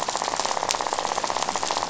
{"label": "biophony, rattle", "recorder": "SoundTrap 500"}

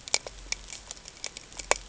{"label": "ambient", "recorder": "HydroMoth"}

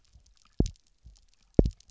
{"label": "biophony, double pulse", "recorder": "SoundTrap 300"}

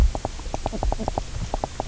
{"label": "biophony, knock croak", "recorder": "SoundTrap 300"}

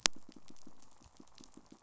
{"label": "biophony, pulse", "recorder": "SoundTrap 500"}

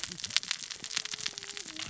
{"label": "biophony, cascading saw", "recorder": "SoundTrap 600 or HydroMoth"}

